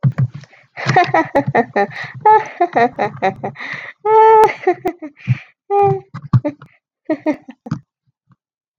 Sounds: Laughter